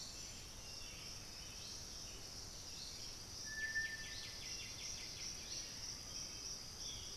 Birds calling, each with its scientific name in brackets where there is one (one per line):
Black-billed Thrush (Turdus ignobilis)
White-winged Becard (Pachyramphus polychopterus)
Striped Cuckoo (Tapera naevia)